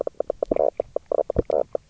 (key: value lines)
label: biophony, knock croak
recorder: SoundTrap 300